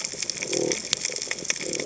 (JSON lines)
{"label": "biophony", "recorder": "HydroMoth"}